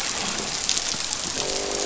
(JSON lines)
{"label": "biophony, croak", "recorder": "SoundTrap 500"}